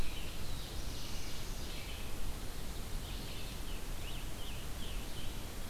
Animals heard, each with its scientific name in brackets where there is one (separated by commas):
Black-throated Blue Warbler (Setophaga caerulescens), Scarlet Tanager (Piranga olivacea), American Robin (Turdus migratorius), Red-eyed Vireo (Vireo olivaceus)